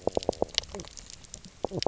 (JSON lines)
{"label": "biophony, knock croak", "recorder": "SoundTrap 300"}